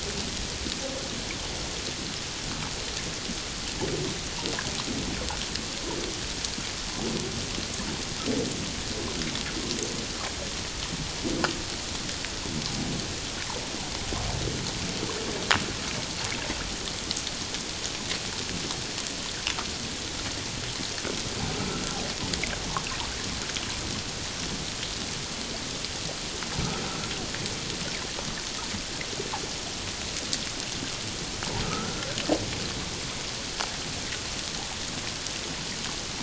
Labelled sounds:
21.7	22.0	humpback whale, 1.3 to 1.5 kHz
31.6	32.0	humpback whale, 1.2 to 1.5 kHz

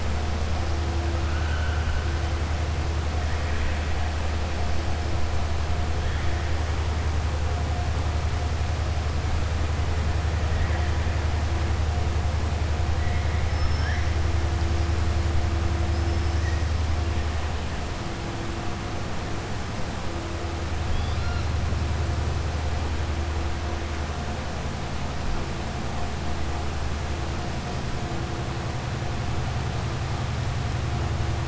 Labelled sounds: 1.2	2.0	killer whale, southern resident, 1.3 to 3.1 kHz
13.5	14.0	killer whale, southern resident, 5.2 to 6.3 kHz

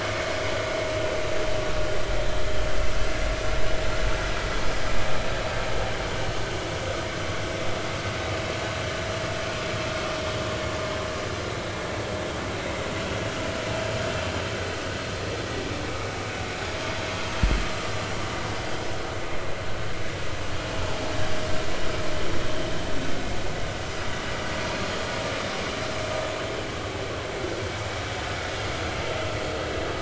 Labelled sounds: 13.8	14.1	vessel noise, 6.7 to 6.9 kHz

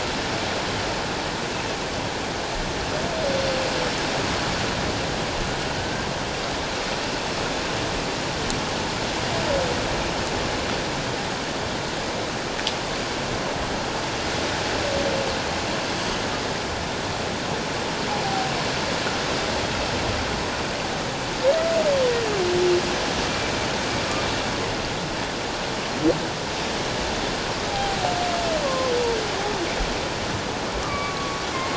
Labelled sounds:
27.7	28.9	humpback whale, 0.78 to 1.2 kHz
30.8	31.7	humpback whale, 1.1 to 2.4 kHz

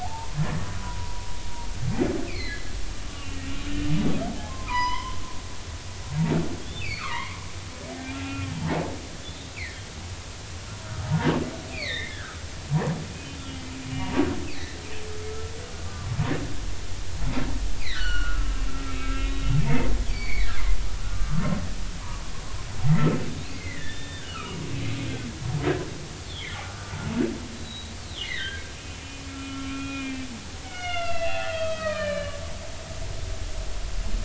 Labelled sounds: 0.0	1.3	humpback whale, 0.80 to 1.9 kHz
2.3	2.6	humpback whale, 3.9 to 4.4 kHz
3.1	3.7	humpback whale, 1.9 to 2.9 kHz
4.5	5.2	humpback whale, 0.90 to 5.2 kHz
6.6	7.5	humpback whale, 0.90 to 3.6 kHz
8.1	8.5	humpback whale, 1.3 to 2.8 kHz
9.5	9.8	humpback whale, 1.7 to 2.7 kHz
11.0	12.4	humpback whale, 0.80 to 4.8 kHz
13.4	14.8	humpback whale, 1.7 to 4.0 kHz
15.8	16.1	humpback whale, 0.96 to 1.2 kHz
17.8	19.3	humpback whale, 1.2 to 6.0 kHz
19.6	20.6	humpback whale, 1.5 to 4.7 kHz
21.1	21.4	humpback whale, 1.1 to 1.3 kHz
23.5	24.6	humpback whale, 1.1 to 4.2 kHz
26.6	27.0	humpback whale, 1.1 to 1.6 kHz
27.5	30.3	humpback whale, 1.1 to 4.0 kHz
30.6	32.4	humpback whale, 0.80 to 5.0 kHz

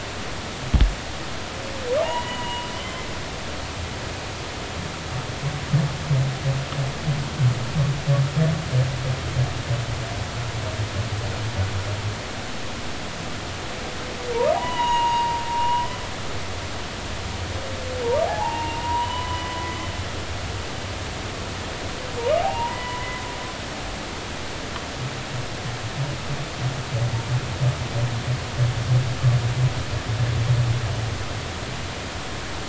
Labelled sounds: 2.0	3.0	humpback whale, 0.90 to 3.2 kHz
14.5	15.9	humpback whale, 0.80 to 6.8 kHz
18.3	19.8	humpback whale, 0.80 to 3.1 kHz
22.5	23.0	humpback whale, 1.9 to 3.0 kHz
23.4	24.1	humpback whale, 0.80 to 1.1 kHz

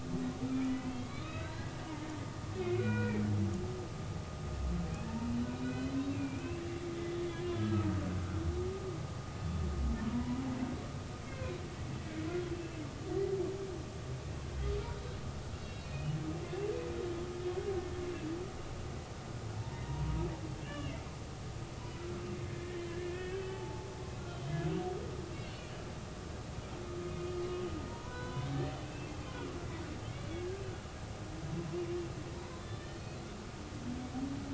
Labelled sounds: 0.6	1.8	humpback whale, 1.2 to 4.3 kHz
2.5	3.2	humpback whale, 1.4 to 2.7 kHz
5.5	6.4	humpback whale, 2.3 to 4.1 kHz
7.5	7.9	humpback whale, 1.2 to 3.6 kHz
10.1	10.4	humpback whale, 0.90 to 1.0 kHz
11.3	11.6	humpback whale, 2.4 to 2.7 kHz
12.5	12.8	humpback whale, 2.6 to 2.8 kHz
15.5	16.1	humpback whale, 2.4 to 4.0 kHz
19.6	20.2	humpback whale, 0.86 to 1.9 kHz
20.6	21.0	humpback whale, 1.6 to 3.0 kHz
22.9	23.9	humpback whale, 0.80 to 3.4 kHz
24.3	24.5	humpback whale, 3.0 to 3.2 kHz
25.3	25.6	humpback whale, 2.7 to 2.9 kHz
27.9	29.1	humpback whale, 0.90 to 3.9 kHz
30.3	30.6	humpback whale, 1.5 to 1.7 kHz
32.6	33.2	humpback whale, 1.7 to 4.5 kHz

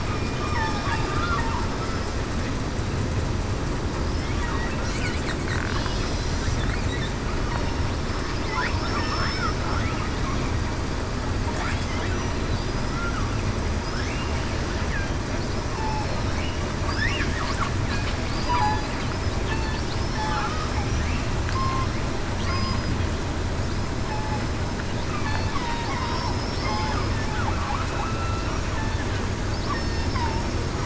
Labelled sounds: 0.5	0.8	killer whale, southern resident, 1.6 to 5.5 kHz
8.7	9.2	killer whale, southern resident, 5.2 to 5.4 kHz
15.8	16.2	killer whale, southern resident, 5.3 to 5.4 kHz
18.3	18.9	killer whale, southern resident, 0.94 to 4.9 kHz
19.9	20.3	killer whale, southern resident, 5.2 to 5.4 kHz
21.5	21.9	killer whale, southern resident, 1.0 to 1.1 kHz
24.1	24.4	killer whale, southern resident, 0.82 to 0.89 kHz
25.5	25.9	killer whale, southern resident, 0.75 to 1.1 kHz
26.6	27.0	killer whale, southern resident, 4.9 to 5.1 kHz
27.9	28.5	killer whale, southern resident, 1.3 to 2.7 kHz

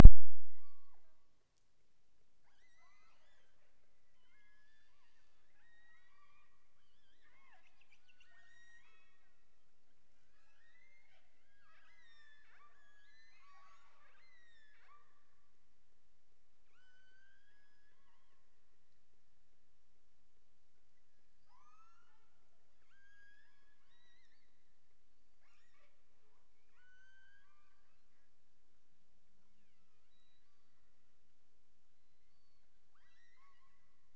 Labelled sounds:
0.1	1.4	killer whale, offshore, 0.39 to 6.3 kHz
2.3	3.6	killer whale, offshore, 0.36 to 8.0 kHz
4.0	9.7	killer whale, offshore, 0.52 to 8.0 kHz
10.2	15.7	killer whale, offshore, 0.27 to 8.0 kHz
16.6	18.5	killer whale, offshore, 0.66 to 7.8 kHz
21.4	22.5	killer whale, offshore, 0.57 to 6.8 kHz
22.8	24.6	killer whale, offshore, 0.93 to 8.0 kHz
25.4	26.0	killer whale, offshore, 0.30 to 8.0 kHz
26.7	28.0	killer whale, offshore, 0.75 to 8.0 kHz
29.4	31.3	killer whale, offshore, 0.95 to 4.9 kHz
31.8	34.1	killer whale, offshore, 0.73 to 6.1 kHz

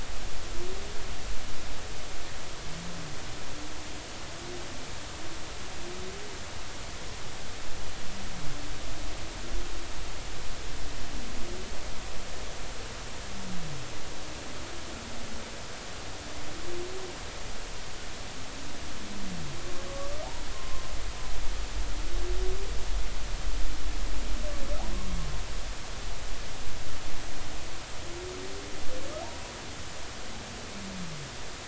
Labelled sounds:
19.9	20.8	humpback whale, 1.0 to 1.2 kHz

